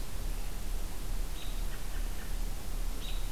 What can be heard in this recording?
American Robin